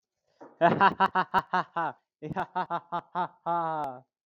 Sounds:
Laughter